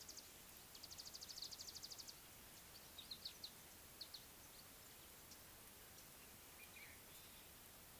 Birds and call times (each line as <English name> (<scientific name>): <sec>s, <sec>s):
Scarlet-chested Sunbird (Chalcomitra senegalensis): 3.2s